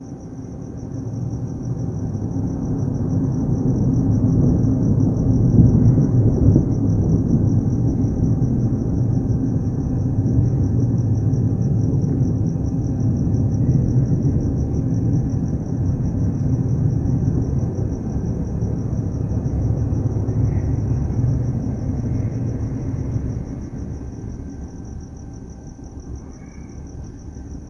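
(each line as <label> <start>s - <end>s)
A bird is singing. 0.0s - 27.7s
An airplane is flying. 0.0s - 27.7s
Noise. 0.0s - 27.7s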